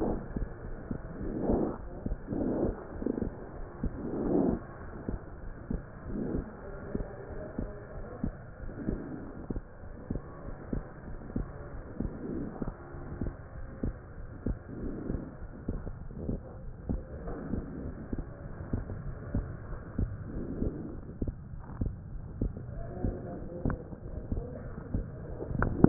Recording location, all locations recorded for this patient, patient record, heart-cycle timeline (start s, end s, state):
pulmonary valve (PV)
aortic valve (AV)+pulmonary valve (PV)+tricuspid valve (TV)+mitral valve (MV)
#Age: Child
#Sex: Male
#Height: 108.0 cm
#Weight: 16.7 kg
#Pregnancy status: False
#Murmur: Absent
#Murmur locations: nan
#Most audible location: nan
#Systolic murmur timing: nan
#Systolic murmur shape: nan
#Systolic murmur grading: nan
#Systolic murmur pitch: nan
#Systolic murmur quality: nan
#Diastolic murmur timing: nan
#Diastolic murmur shape: nan
#Diastolic murmur grading: nan
#Diastolic murmur pitch: nan
#Diastolic murmur quality: nan
#Outcome: Normal
#Campaign: 2015 screening campaign
0.00	5.34	unannotated
5.34	5.41	diastole
5.41	5.52	S1
5.52	5.66	systole
5.66	5.81	S2
5.81	6.04	diastole
6.04	6.14	S1
6.14	6.33	systole
6.33	6.44	S2
6.44	6.60	diastole
6.60	6.74	S1
6.74	6.91	systole
6.91	7.05	S2
7.05	7.28	diastole
7.28	7.42	S1
7.42	7.55	systole
7.55	7.71	S2
7.71	7.92	diastole
7.92	8.01	S1
8.01	8.20	systole
8.20	8.34	S2
8.34	8.57	diastole
8.57	8.72	S1
8.72	8.86	systole
8.86	8.99	S2
8.99	9.20	diastole
9.20	9.30	S1
9.30	9.47	systole
9.47	9.63	S2
9.63	9.81	diastole
9.81	9.97	S1
9.97	10.08	systole
10.08	10.24	S2
10.24	10.43	diastole
10.43	10.58	S1
10.58	10.70	systole
10.70	10.83	S2
10.83	11.05	diastole
11.05	11.18	S1
11.18	11.34	systole
11.34	11.46	S2
11.46	11.70	diastole
11.70	11.83	S1
11.83	11.98	systole
11.98	12.11	S2
12.11	12.32	diastole
12.32	12.45	S1
12.45	12.60	systole
12.60	12.76	S2
12.76	12.90	diastole
12.90	13.04	S1
13.04	13.20	systole
13.20	13.33	S2
13.33	13.51	diastole
13.51	13.63	S1
13.63	13.82	systole
13.82	13.94	S2
13.94	14.14	diastole
14.14	14.22	S1
14.22	14.44	systole
14.44	14.57	S2
14.57	14.78	diastole
14.78	14.93	S1
14.93	15.09	systole
15.09	15.20	S2
15.20	15.38	diastole
15.38	15.49	S1
15.49	15.68	systole
15.68	15.82	S2
15.82	16.00	diastole
16.00	16.10	S1
16.10	16.26	systole
16.26	16.40	S2
16.40	16.62	diastole
16.62	16.75	S1
16.75	16.88	systole
16.88	17.02	S2
17.02	17.26	diastole
17.26	17.35	S1
17.35	17.52	systole
17.52	17.63	S2
17.63	17.83	diastole
17.83	17.92	S1
17.92	18.11	systole
18.11	18.20	S2
18.20	18.40	diastole
18.40	18.50	S1
18.50	18.71	systole
18.71	18.84	S2
18.84	19.03	diastole
19.03	19.16	S1
19.16	19.34	systole
19.34	19.46	S2
19.46	19.70	diastole
19.70	19.78	S1
19.78	19.98	systole
19.98	20.12	S2
20.12	20.30	diastole
20.30	25.89	unannotated